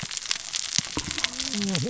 {"label": "biophony, cascading saw", "recorder": "SoundTrap 600 or HydroMoth"}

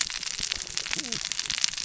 {"label": "biophony, cascading saw", "recorder": "SoundTrap 600 or HydroMoth"}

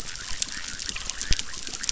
{"label": "biophony, chorus", "recorder": "SoundTrap 600"}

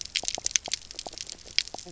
{"label": "biophony, knock croak", "recorder": "SoundTrap 300"}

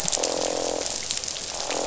{"label": "biophony, croak", "recorder": "SoundTrap 500"}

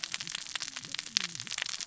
{"label": "biophony, cascading saw", "recorder": "SoundTrap 600 or HydroMoth"}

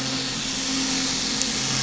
{"label": "anthrophony, boat engine", "recorder": "SoundTrap 500"}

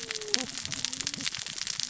{"label": "biophony, cascading saw", "recorder": "SoundTrap 600 or HydroMoth"}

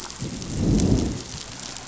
{"label": "biophony, growl", "recorder": "SoundTrap 500"}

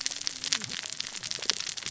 {"label": "biophony, cascading saw", "recorder": "SoundTrap 600 or HydroMoth"}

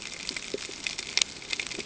{"label": "ambient", "recorder": "HydroMoth"}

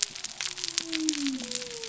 {"label": "biophony", "recorder": "SoundTrap 300"}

